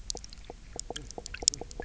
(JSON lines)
{"label": "biophony, knock croak", "recorder": "SoundTrap 300"}